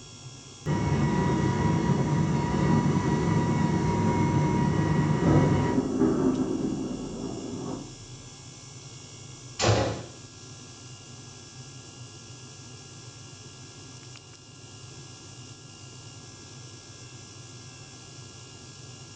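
At the start, there is the sound of an engine. Over it, about 5 seconds in, thunder is heard. After that, about 10 seconds in, you can hear gunfire.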